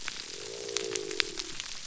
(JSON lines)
{"label": "biophony", "recorder": "SoundTrap 300"}